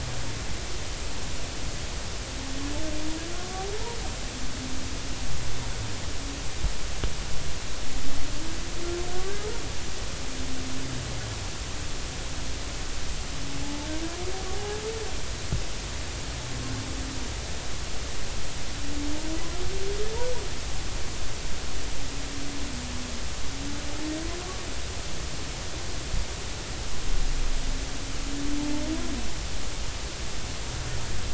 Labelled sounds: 13.6	13.9	humpback whale, 0.83 to 0.93 kHz

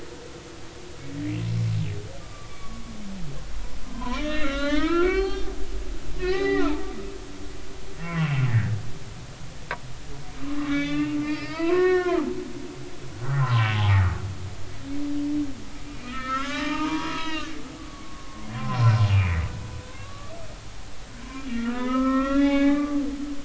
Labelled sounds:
2.2	2.8	humpback whale, 1.1 to 1.2 kHz
3.9	5.5	humpback whale, 0.80 to 6.3 kHz
6.2	6.9	humpback whale, 0.80 to 4.0 kHz
8.0	8.8	humpback whale, 0.93 to 3.0 kHz
10.6	12.2	humpback whale, 0.90 to 5.2 kHz
13.2	14.0	humpback whale, 0.80 to 1.4 kHz
15.8	20.3	humpback whale, 0.86 to 4.3 kHz
21.5	23.0	humpback whale, 0.80 to 3.8 kHz

